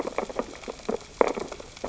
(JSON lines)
{"label": "biophony, sea urchins (Echinidae)", "recorder": "SoundTrap 600 or HydroMoth"}